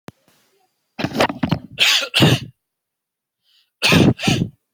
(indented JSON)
{
  "expert_labels": [
    {
      "quality": "ok",
      "cough_type": "dry",
      "dyspnea": false,
      "wheezing": true,
      "stridor": false,
      "choking": false,
      "congestion": false,
      "nothing": false,
      "diagnosis": "obstructive lung disease",
      "severity": "mild"
    }
  ],
  "age": 29,
  "gender": "male",
  "respiratory_condition": false,
  "fever_muscle_pain": false,
  "status": "symptomatic"
}